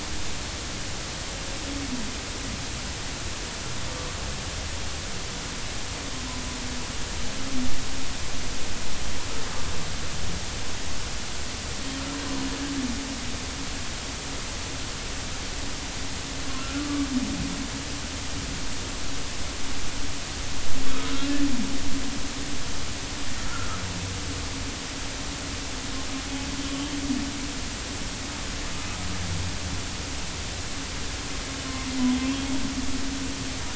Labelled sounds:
16.5	17.1	humpback whale, 1.1 to 1.5 kHz
23.4	23.8	humpback whale, 1.2 to 1.5 kHz
26.7	27.0	humpback whale, 3.0 to 3.3 kHz
31.7	32.4	humpback whale, 0.96 to 2.8 kHz

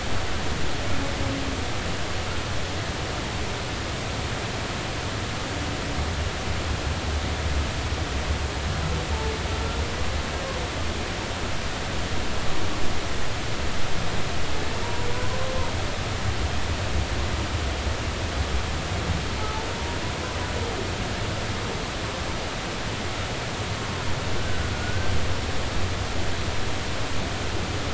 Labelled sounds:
9.5	9.8	humpback whale, 1.3 to 1.5 kHz
14.8	15.1	humpback whale, 0.90 to 1.0 kHz
19.4	19.7	humpback whale, 0.83 to 0.93 kHz
24.7	25.1	humpback whale, 1.4 to 1.6 kHz

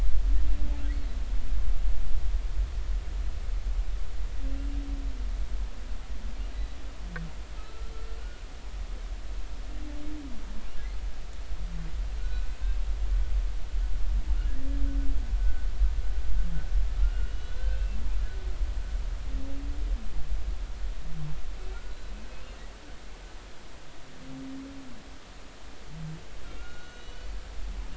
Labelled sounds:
7.6	7.9	humpback whale, 1.2 to 1.4 kHz
12.2	12.5	humpback whale, 1.4 to 1.5 kHz
15.4	15.7	humpback whale, 1.4 to 1.6 kHz
17.0	18.0	humpback whale, 1.3 to 6.4 kHz
26.6	27.3	humpback whale, 1.3 to 6.3 kHz

